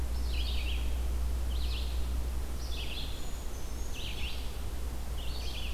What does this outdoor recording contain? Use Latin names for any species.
Vireo olivaceus, Certhia americana